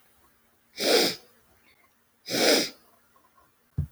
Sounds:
Sniff